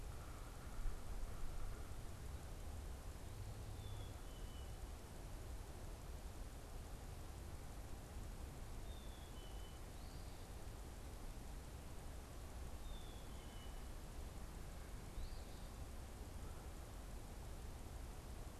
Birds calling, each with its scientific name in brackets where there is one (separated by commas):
Eastern Phoebe (Sayornis phoebe), Yellow-bellied Sapsucker (Sphyrapicus varius), Black-capped Chickadee (Poecile atricapillus)